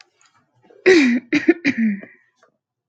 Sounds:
Throat clearing